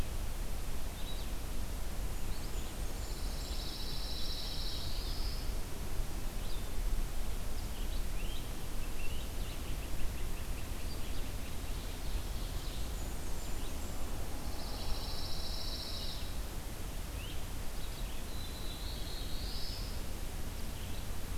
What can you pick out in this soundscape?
Red-eyed Vireo, Blackburnian Warbler, Pine Warbler, Black-throated Blue Warbler, Great Crested Flycatcher, Ovenbird